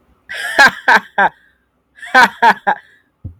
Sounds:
Laughter